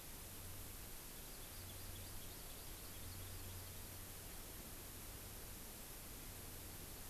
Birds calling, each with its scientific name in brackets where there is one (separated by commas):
Hawaii Amakihi (Chlorodrepanis virens)